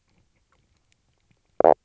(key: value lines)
label: biophony, knock croak
recorder: SoundTrap 300